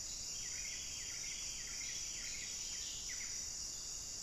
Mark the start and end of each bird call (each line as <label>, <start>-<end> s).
Buff-breasted Wren (Cantorchilus leucotis), 0.0-3.9 s